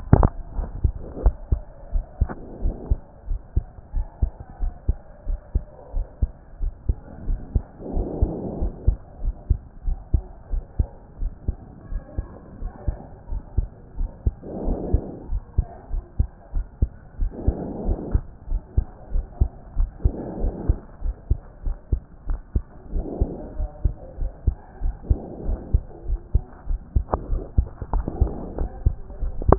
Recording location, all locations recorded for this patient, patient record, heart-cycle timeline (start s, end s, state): pulmonary valve (PV)
aortic valve (AV)+pulmonary valve (PV)+tricuspid valve (TV)+mitral valve (MV)
#Age: Adolescent
#Sex: Male
#Height: 155.0 cm
#Weight: 40.0 kg
#Pregnancy status: False
#Murmur: Absent
#Murmur locations: nan
#Most audible location: nan
#Systolic murmur timing: nan
#Systolic murmur shape: nan
#Systolic murmur grading: nan
#Systolic murmur pitch: nan
#Systolic murmur quality: nan
#Diastolic murmur timing: nan
#Diastolic murmur shape: nan
#Diastolic murmur grading: nan
#Diastolic murmur pitch: nan
#Diastolic murmur quality: nan
#Outcome: Normal
#Campaign: 2014 screening campaign
0.00	1.72	unannotated
1.72	1.92	diastole
1.92	2.04	S1
2.04	2.20	systole
2.20	2.30	S2
2.30	2.62	diastole
2.62	2.74	S1
2.74	2.90	systole
2.90	2.98	S2
2.98	3.28	diastole
3.28	3.40	S1
3.40	3.56	systole
3.56	3.64	S2
3.64	3.94	diastole
3.94	4.06	S1
4.06	4.20	systole
4.20	4.30	S2
4.30	4.62	diastole
4.62	4.72	S1
4.72	4.88	systole
4.88	4.96	S2
4.96	5.28	diastole
5.28	5.38	S1
5.38	5.54	systole
5.54	5.64	S2
5.64	5.94	diastole
5.94	6.06	S1
6.06	6.20	systole
6.20	6.30	S2
6.30	6.62	diastole
6.62	6.72	S1
6.72	6.88	systole
6.88	6.96	S2
6.96	7.26	diastole
7.26	7.40	S1
7.40	7.54	systole
7.54	7.64	S2
7.64	7.94	diastole
7.94	8.08	S1
8.08	8.20	systole
8.20	8.32	S2
8.32	8.60	diastole
8.60	8.72	S1
8.72	8.86	systole
8.86	8.98	S2
8.98	9.22	diastole
9.22	9.34	S1
9.34	9.48	systole
9.48	9.58	S2
9.58	9.86	diastole
9.86	9.98	S1
9.98	10.12	systole
10.12	10.22	S2
10.22	10.52	diastole
10.52	10.64	S1
10.64	10.78	systole
10.78	10.88	S2
10.88	11.20	diastole
11.20	11.32	S1
11.32	11.46	systole
11.46	11.56	S2
11.56	11.92	diastole
11.92	12.02	S1
12.02	12.18	systole
12.18	12.28	S2
12.28	12.60	diastole
12.60	12.72	S1
12.72	12.86	systole
12.86	12.96	S2
12.96	13.30	diastole
13.30	13.42	S1
13.42	13.56	systole
13.56	13.68	S2
13.68	13.98	diastole
13.98	14.10	S1
14.10	14.24	systole
14.24	14.34	S2
14.34	14.64	diastole
14.64	14.78	S1
14.78	14.92	systole
14.92	15.02	S2
15.02	15.30	diastole
15.30	15.42	S1
15.42	15.56	systole
15.56	15.66	S2
15.66	15.92	diastole
15.92	16.04	S1
16.04	16.18	systole
16.18	16.28	S2
16.28	16.54	diastole
16.54	16.66	S1
16.66	16.80	systole
16.80	16.90	S2
16.90	17.20	diastole
17.20	17.32	S1
17.32	17.46	systole
17.46	17.56	S2
17.56	17.84	diastole
17.84	17.98	S1
17.98	18.12	systole
18.12	18.22	S2
18.22	18.50	diastole
18.50	18.62	S1
18.62	18.76	systole
18.76	18.86	S2
18.86	19.14	diastole
19.14	19.26	S1
19.26	19.40	systole
19.40	19.50	S2
19.50	19.78	diastole
19.78	19.90	S1
19.90	20.04	systole
20.04	20.14	S2
20.14	20.40	diastole
20.40	20.54	S1
20.54	20.68	systole
20.68	20.78	S2
20.78	21.04	diastole
21.04	21.14	S1
21.14	21.30	systole
21.30	21.40	S2
21.40	21.64	diastole
21.64	21.76	S1
21.76	21.92	systole
21.92	22.02	S2
22.02	22.28	diastole
22.28	22.40	S1
22.40	22.54	systole
22.54	22.64	S2
22.64	22.94	diastole
22.94	23.06	S1
23.06	23.20	systole
23.20	23.30	S2
23.30	23.58	diastole
23.58	23.70	S1
23.70	23.84	systole
23.84	23.94	S2
23.94	24.20	diastole
24.20	24.32	S1
24.32	24.46	systole
24.46	24.56	S2
24.56	24.82	diastole
24.82	24.94	S1
24.94	25.08	systole
25.08	25.18	S2
25.18	25.46	diastole
25.46	25.60	S1
25.60	25.72	systole
25.72	25.82	S2
25.82	26.08	diastole
26.08	26.20	S1
26.20	26.34	systole
26.34	26.44	S2
26.44	26.68	diastole
26.68	29.58	unannotated